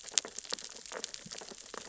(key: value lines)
label: biophony, sea urchins (Echinidae)
recorder: SoundTrap 600 or HydroMoth